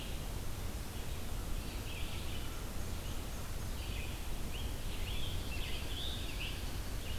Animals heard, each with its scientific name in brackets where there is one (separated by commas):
Scarlet Tanager (Piranga olivacea), Black-and-white Warbler (Mniotilta varia), Red-eyed Vireo (Vireo olivaceus)